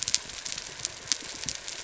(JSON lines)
{"label": "anthrophony, boat engine", "recorder": "SoundTrap 300"}